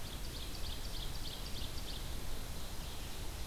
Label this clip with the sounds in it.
Ovenbird, Red-eyed Vireo